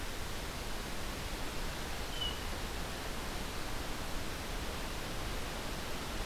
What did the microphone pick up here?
Hermit Thrush